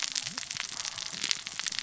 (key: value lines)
label: biophony, cascading saw
recorder: SoundTrap 600 or HydroMoth